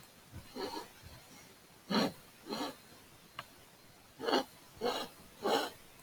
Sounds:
Sniff